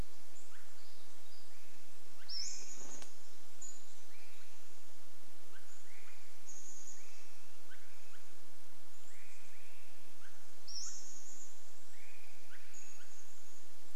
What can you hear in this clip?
unidentified bird chip note, Swainson's Thrush call, Chestnut-backed Chickadee call, Pacific-slope Flycatcher call